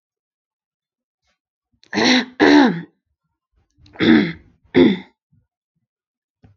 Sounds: Throat clearing